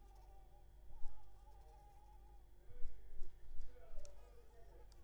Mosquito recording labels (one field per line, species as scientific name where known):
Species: Anopheles arabiensis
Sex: female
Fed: unfed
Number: one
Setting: cup